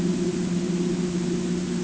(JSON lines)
{"label": "ambient", "recorder": "HydroMoth"}